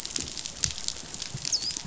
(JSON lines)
{"label": "biophony, dolphin", "recorder": "SoundTrap 500"}